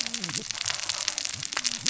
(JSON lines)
{"label": "biophony, cascading saw", "recorder": "SoundTrap 600 or HydroMoth"}